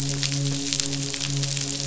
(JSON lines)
{"label": "biophony, midshipman", "recorder": "SoundTrap 500"}